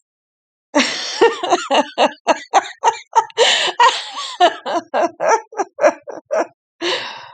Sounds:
Laughter